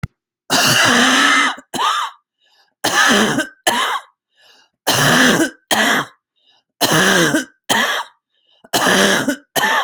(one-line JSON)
{"expert_labels": [{"quality": "good", "cough_type": "wet", "dyspnea": false, "wheezing": false, "stridor": false, "choking": false, "congestion": false, "nothing": true, "diagnosis": "lower respiratory tract infection", "severity": "severe"}], "age": 61, "gender": "female", "respiratory_condition": false, "fever_muscle_pain": false, "status": "symptomatic"}